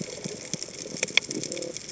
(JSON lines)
{"label": "biophony", "recorder": "HydroMoth"}